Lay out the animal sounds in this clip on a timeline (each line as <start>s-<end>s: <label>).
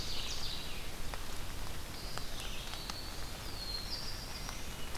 0.0s-1.0s: Ovenbird (Seiurus aurocapilla)
0.0s-2.7s: Red-eyed Vireo (Vireo olivaceus)
1.8s-3.3s: Eastern Wood-Pewee (Contopus virens)
1.8s-3.4s: Black-throated Green Warbler (Setophaga virens)
3.3s-4.9s: Black-throated Blue Warbler (Setophaga caerulescens)